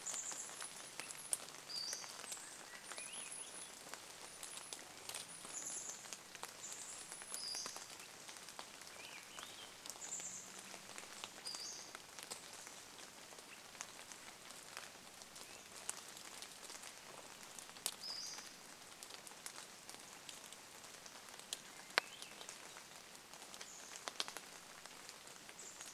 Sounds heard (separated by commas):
rain, Chestnut-backed Chickadee call, Swainson's Thrush call, Swainson's Thrush song, Pacific-slope Flycatcher call